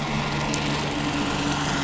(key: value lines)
label: anthrophony, boat engine
recorder: SoundTrap 500